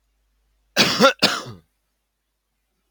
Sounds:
Cough